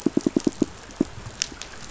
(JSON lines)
{"label": "biophony, pulse", "recorder": "SoundTrap 500"}